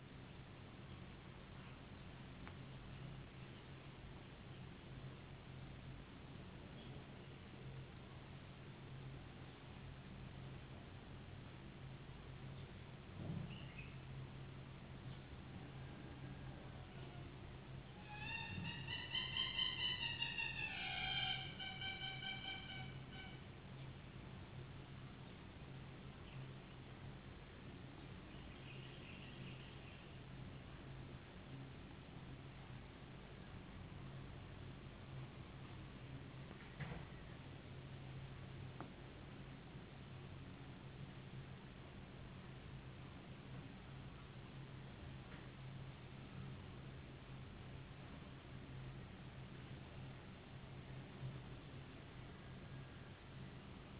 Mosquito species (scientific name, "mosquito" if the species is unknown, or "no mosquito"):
no mosquito